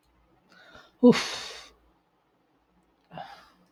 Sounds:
Sigh